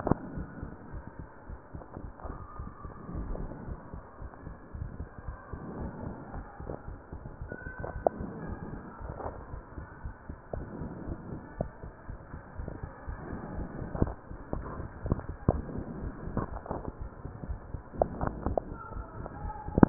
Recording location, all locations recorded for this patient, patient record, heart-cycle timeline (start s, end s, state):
pulmonary valve (PV)
aortic valve (AV)+pulmonary valve (PV)+tricuspid valve (TV)+mitral valve (MV)
#Age: nan
#Sex: Female
#Height: nan
#Weight: nan
#Pregnancy status: True
#Murmur: Absent
#Murmur locations: nan
#Most audible location: nan
#Systolic murmur timing: nan
#Systolic murmur shape: nan
#Systolic murmur grading: nan
#Systolic murmur pitch: nan
#Systolic murmur quality: nan
#Diastolic murmur timing: nan
#Diastolic murmur shape: nan
#Diastolic murmur grading: nan
#Diastolic murmur pitch: nan
#Diastolic murmur quality: nan
#Outcome: Normal
#Campaign: 2015 screening campaign
0.00	0.18	unannotated
0.18	0.34	diastole
0.34	0.48	S1
0.48	0.62	systole
0.62	0.74	S2
0.74	0.92	diastole
0.92	1.04	S1
1.04	1.18	systole
1.18	1.28	S2
1.28	1.46	diastole
1.46	1.58	S1
1.58	1.72	systole
1.72	1.84	S2
1.84	2.02	diastole
2.02	2.12	S1
2.12	2.28	systole
2.28	2.40	S2
2.40	2.57	diastole
2.57	2.68	S1
2.68	2.82	systole
2.82	2.92	S2
2.92	3.10	diastole
3.10	3.26	S1
3.26	3.37	systole
3.37	3.50	S2
3.50	3.65	diastole
3.65	3.78	S1
3.78	3.92	systole
3.92	4.04	S2
4.04	4.18	diastole
4.18	4.30	S1
4.30	4.43	systole
4.43	4.56	S2
4.56	4.73	diastole
4.73	4.89	S1
4.89	4.97	systole
4.97	5.08	S2
5.08	5.26	diastole
5.26	5.38	S1
5.38	5.50	systole
5.50	5.60	S2
5.60	5.76	diastole
5.76	5.92	S1
5.92	6.04	systole
6.04	6.18	S2
6.18	6.32	diastole
6.32	6.46	S1
6.46	6.59	systole
6.59	6.74	S2
6.74	6.86	diastole
6.86	7.00	S1
7.00	7.12	systole
7.12	7.24	S2
7.24	7.42	diastole
7.42	7.52	S1
7.52	7.64	systole
7.64	7.72	S2
7.72	7.88	diastole
7.88	8.04	S1
8.04	8.18	systole
8.18	8.32	S2
8.32	8.44	diastole
8.44	8.58	S1
8.58	8.70	systole
8.70	8.84	S2
8.84	9.02	diastole
9.02	9.16	S1
9.16	9.24	systole
9.24	9.34	S2
9.34	9.52	diastole
9.52	9.62	S1
9.62	9.76	systole
9.76	9.87	S2
9.87	10.04	diastole
10.04	10.12	S1
10.12	10.28	systole
10.28	10.38	S2
10.38	10.52	diastole
10.52	10.68	S1
10.68	10.78	systole
10.78	10.92	S2
10.92	11.06	diastole
11.06	11.20	S1
11.20	11.28	systole
11.28	11.42	S2
11.42	11.58	diastole
11.58	19.89	unannotated